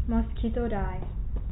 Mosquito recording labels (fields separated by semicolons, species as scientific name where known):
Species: mosquito; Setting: cup